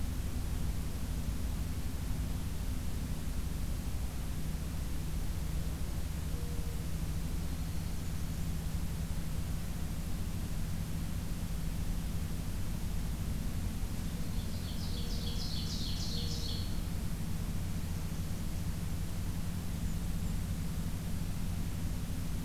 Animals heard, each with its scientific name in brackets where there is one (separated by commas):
Black-throated Green Warbler (Setophaga virens), Ovenbird (Seiurus aurocapilla), Blackburnian Warbler (Setophaga fusca), Mourning Dove (Zenaida macroura)